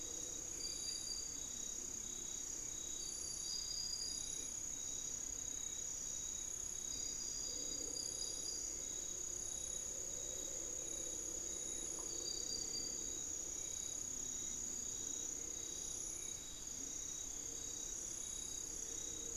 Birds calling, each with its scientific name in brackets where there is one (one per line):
Hauxwell's Thrush (Turdus hauxwelli)